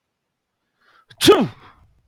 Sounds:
Sneeze